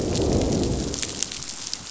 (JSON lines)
{"label": "biophony, growl", "recorder": "SoundTrap 500"}